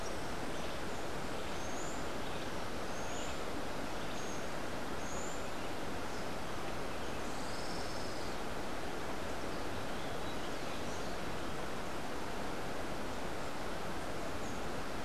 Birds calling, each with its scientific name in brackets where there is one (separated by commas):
Buff-throated Saltator (Saltator maximus), Olivaceous Woodcreeper (Sittasomus griseicapillus)